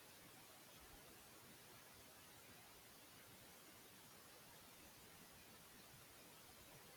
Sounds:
Sigh